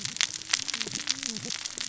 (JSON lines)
{"label": "biophony, cascading saw", "recorder": "SoundTrap 600 or HydroMoth"}